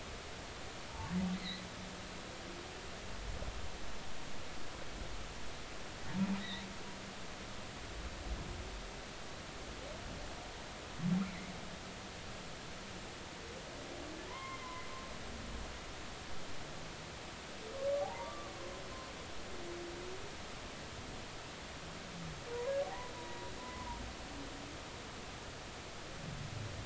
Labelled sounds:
1.4	1.6	humpback whale, 3.6 to 4.4 kHz
6.4	6.7	humpback whale, 3.5 to 4.0 kHz
11.3	11.5	humpback whale, 1.9 to 2.4 kHz
14.3	14.9	humpback whale, 0.93 to 2.2 kHz
18.0	18.5	humpback whale, 0.80 to 1.2 kHz
22.8	24.0	humpback whale, 0.80 to 1.1 kHz

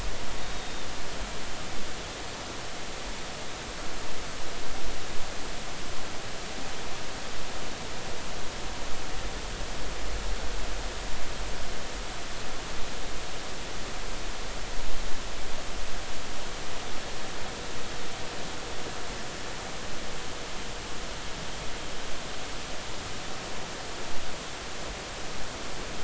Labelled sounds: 0.4	0.9	Pacific white-sided dolphin, 3.5 to 3.8 kHz

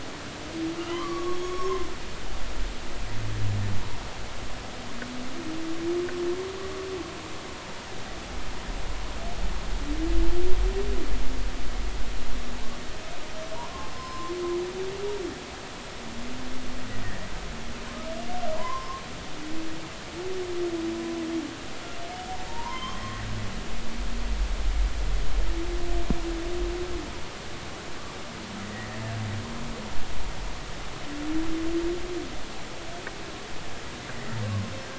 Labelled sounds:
0.8	1.9	humpback whale, 0.96 to 6.7 kHz
13.5	14.3	humpback whale, 0.90 to 5.2 kHz
18.6	19.0	humpback whale, 0.86 to 1.1 kHz
22.5	23.2	humpback whale, 0.86 to 3.3 kHz
28.7	29.0	humpback whale, 1.8 to 2.0 kHz

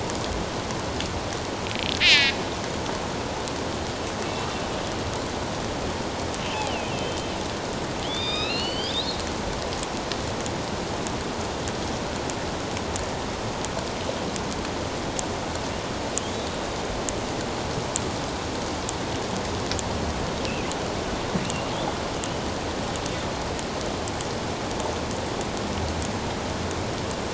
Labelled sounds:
2.0	2.4	killer whale, northern resident, A clan, AB subclan, 1.6 to 5.1 kHz
6.4	7.3	killer whale, northern resident, A clan, AB subclan, 2.3 to 3.2 kHz
8.0	9.2	killer whale, northern resident, A clan, AB subclan, 1.2 to 5.3 kHz

